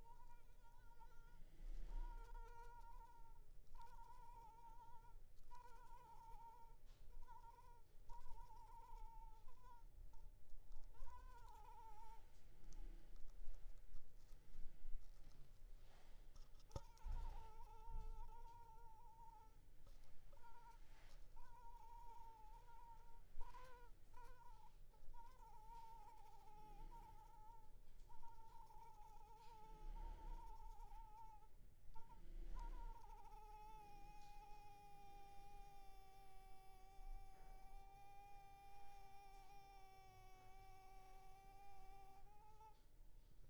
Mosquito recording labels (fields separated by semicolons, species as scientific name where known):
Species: Anopheles arabiensis; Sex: female; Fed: blood-fed; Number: one; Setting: cup